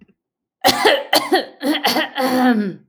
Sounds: Throat clearing